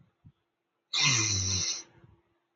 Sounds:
Sniff